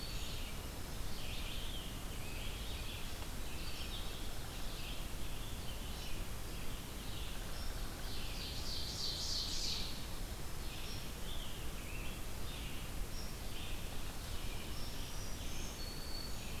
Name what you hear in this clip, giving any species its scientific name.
Vireo olivaceus, Junco hyemalis, Seiurus aurocapilla, Piranga olivacea, Setophaga virens